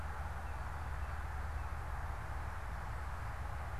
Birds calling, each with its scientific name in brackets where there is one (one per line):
Northern Cardinal (Cardinalis cardinalis)